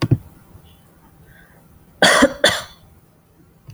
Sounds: Cough